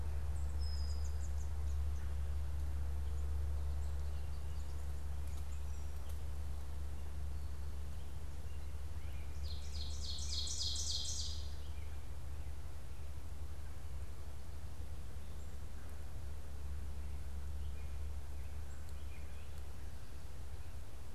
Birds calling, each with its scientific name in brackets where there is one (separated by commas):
Brown-headed Cowbird (Molothrus ater), Ovenbird (Seiurus aurocapilla), unidentified bird